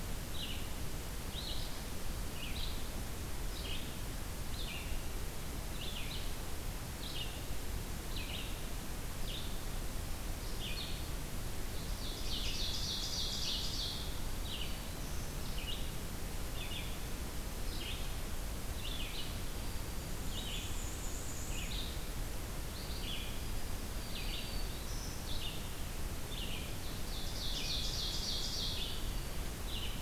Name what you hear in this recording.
Red-eyed Vireo, Ovenbird, Black-throated Green Warbler, Black-and-white Warbler